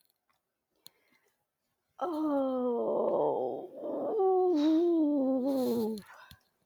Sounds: Sigh